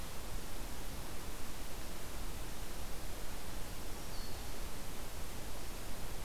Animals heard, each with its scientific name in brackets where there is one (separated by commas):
Black-throated Green Warbler (Setophaga virens)